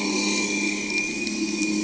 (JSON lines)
{"label": "anthrophony, boat engine", "recorder": "HydroMoth"}